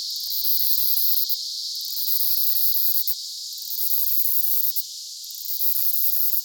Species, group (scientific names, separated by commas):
Myopsalta mackinlayi, Cicadidae